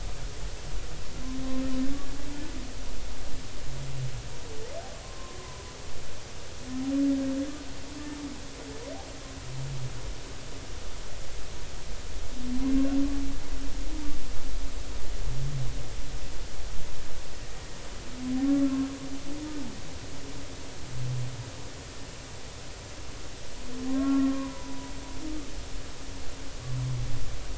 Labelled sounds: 5.0	5.6	humpback whale, 0.96 to 1.1 kHz
23.9	25.5	humpback whale, 0.93 to 1.4 kHz

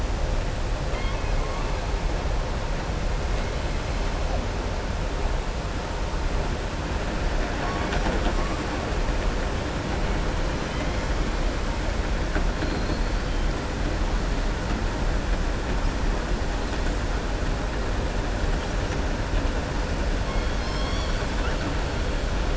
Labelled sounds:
0.8	1.4	killer whale, southern resident, 1.3 to 4.3 kHz
12.5	13.1	killer whale, southern resident, 3.3 to 4.6 kHz

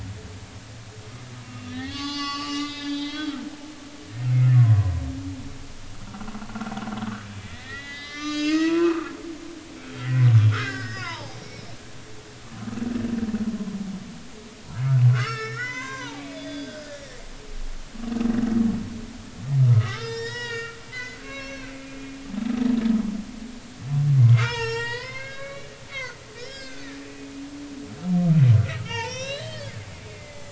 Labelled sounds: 1.4	3.4	humpback whale, 0.80 to 6.1 kHz
4.5	5.0	humpback whale, 0.96 to 1.1 kHz
7.4	9.1	humpback whale, 0.93 to 7.4 kHz
10.0	11.4	humpback whale, 0.80 to 5.5 kHz
15.1	17.2	humpback whale, 0.80 to 6.4 kHz
19.7	21.7	humpback whale, 0.86 to 7.5 kHz
24.4	27.3	humpback whale, 0.86 to 8.0 kHz
28.7	29.8	humpback whale, 0.83 to 6.2 kHz
30.1	30.4	humpback whale, 2.0 to 2.2 kHz

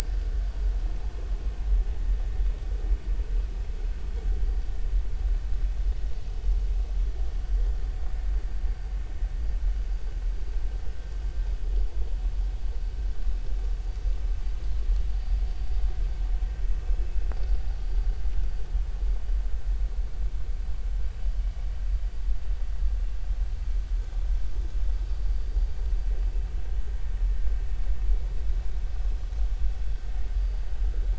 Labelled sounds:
1.0	1.3	vessel noise, 1.8 to 1.9 kHz

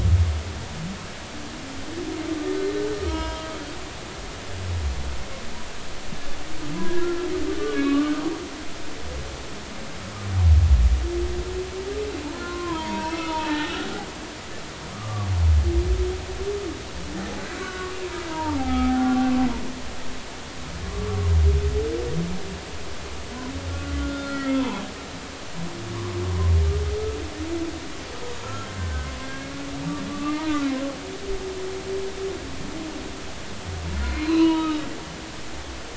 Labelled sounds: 3.0	3.6	humpback whale, 0.90 to 5.2 kHz
6.7	8.2	humpback whale, 0.96 to 3.5 kHz
12.2	13.7	humpback whale, 0.83 to 2.7 kHz
14.9	15.3	humpback whale, 1.1 to 1.3 kHz
17.5	19.3	humpback whale, 0.80 to 2.4 kHz
21.1	21.3	humpback whale, 0.99 to 1.2 kHz
23.7	24.8	humpback whale, 0.80 to 2.0 kHz
28.4	29.5	humpback whale, 1.2 to 1.7 kHz
30.1	30.7	humpback whale, 0.86 to 2.8 kHz
34.0	34.9	humpback whale, 0.90 to 4.3 kHz

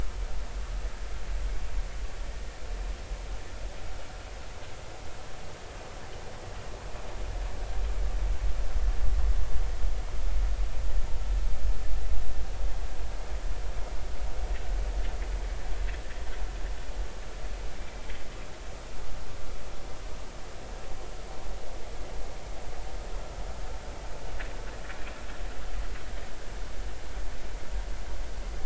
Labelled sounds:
17.8	18.0	vessel noise, 2.2 to 2.4 kHz

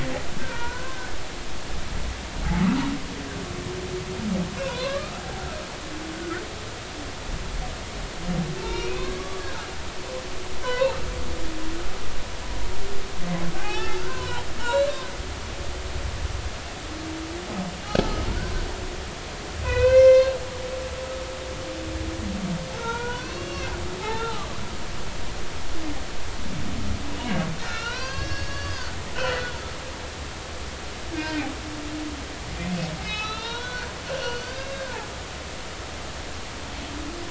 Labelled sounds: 0.4	1.1	humpback whale, 0.90 to 2.5 kHz
4.6	5.4	humpback whale, 0.80 to 2.8 kHz
8.6	9.4	humpback whale, 0.83 to 2.9 kHz
10.6	11.0	humpback whale, 0.83 to 1.6 kHz
13.5	15.1	humpback whale, 0.80 to 4.2 kHz
18.0	18.3	humpback whale, 1.2 to 1.4 kHz
19.6	20.4	humpback whale, 0.93 to 5.9 kHz
22.8	24.5	humpback whale, 0.80 to 3.7 kHz
27.6	29.0	humpback whale, 0.90 to 6.1 kHz
31.1	31.5	humpback whale, 1.5 to 5.1 kHz
33.0	35.0	humpback whale, 0.80 to 5.5 kHz

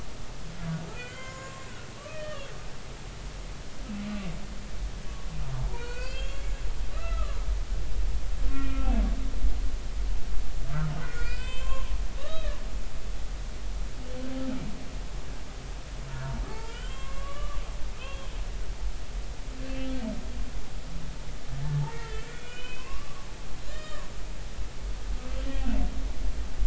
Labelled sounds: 0.9	1.7	humpback whale, 0.99 to 7.0 kHz
2.0	2.4	humpback whale, 1.1 to 3.3 kHz
5.6	6.5	humpback whale, 0.83 to 4.8 kHz
6.9	7.4	humpback whale, 0.96 to 2.0 kHz
8.5	8.9	humpback whale, 1.3 to 3.1 kHz
11.0	11.9	humpback whale, 0.99 to 5.1 kHz
12.2	12.6	humpback whale, 0.99 to 3.9 kHz
16.5	17.6	humpback whale, 0.83 to 3.3 kHz
17.9	18.3	humpback whale, 2.4 to 3.3 kHz
19.6	19.9	humpback whale, 2.6 to 2.7 kHz
21.9	23.3	humpback whale, 0.99 to 3.1 kHz
23.7	24.1	humpback whale, 0.96 to 3.8 kHz
25.4	25.6	humpback whale, 3.1 to 3.3 kHz

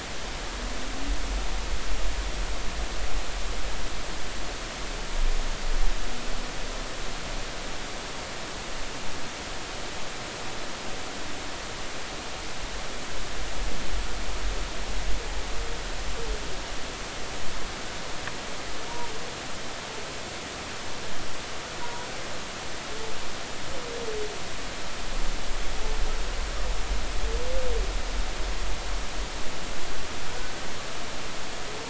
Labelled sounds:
21.8	22.1	humpback whale, 0.90 to 1.0 kHz

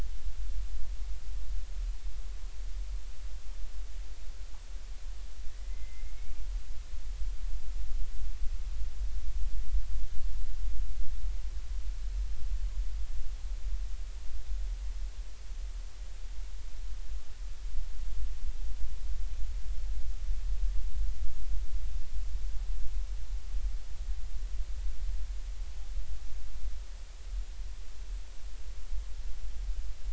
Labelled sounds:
5.5	6.3	killer whale, Bigg's (transient), 1.9 to 2.4 kHz

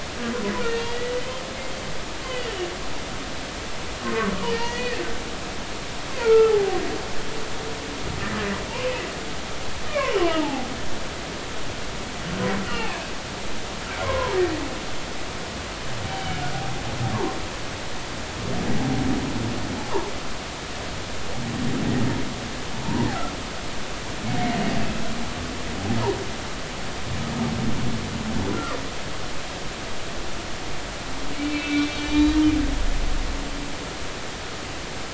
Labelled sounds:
0.6	1.4	humpback whale, 1.9 to 3.2 kHz
2.2	2.5	humpback whale, 2.8 to 3.1 kHz
4.0	5.0	humpback whale, 0.99 to 4.9 kHz
6.2	6.8	humpback whale, 0.80 to 1.5 kHz
9.9	10.7	humpback whale, 0.80 to 2.5 kHz
12.7	13.0	humpback whale, 2.3 to 2.9 kHz
14.0	14.4	humpback whale, 0.86 to 1.1 kHz
16.1	16.4	humpback whale, 2.9 to 3.1 kHz
28.5	28.8	humpback whale, 0.96 to 1.4 kHz
31.3	32.4	humpback whale, 1.4 to 4.5 kHz

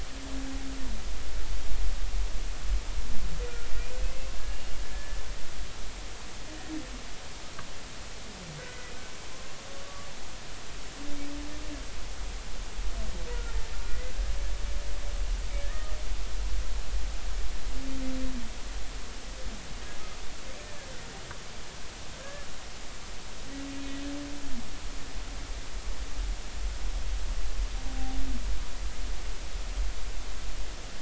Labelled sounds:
4.4	5.2	humpback whale, 1.6 to 1.8 kHz
8.6	8.9	humpback whale, 1.4 to 2.0 kHz
9.8	10.1	humpback whale, 1.1 to 1.2 kHz
13.8	14.1	humpback whale, 1.4 to 2.1 kHz
15.6	15.9	humpback whale, 1.7 to 1.9 kHz
22.2	22.5	humpback whale, 1.6 to 1.8 kHz

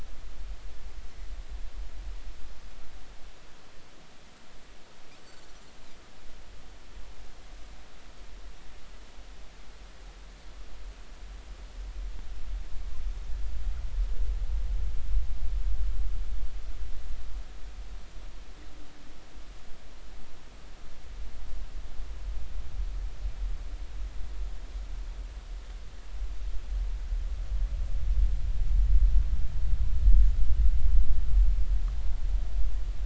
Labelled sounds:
5.2	5.5	Pacific white-sided dolphin, 4.3 to 4.6 kHz

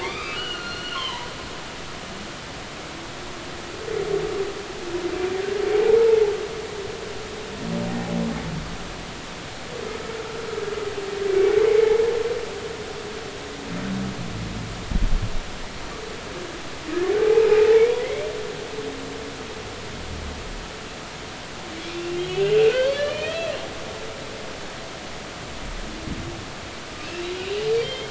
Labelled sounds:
0.0	1.3	humpback whale, 0.90 to 4.9 kHz
5.7	6.0	humpback whale, 0.80 to 0.93 kHz
17.0	18.3	humpback whale, 0.80 to 2.6 kHz
21.9	23.5	humpback whale, 1.4 to 3.5 kHz
27.0	28.0	humpback whale, 2.0 to 3.3 kHz

